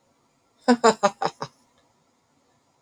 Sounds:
Laughter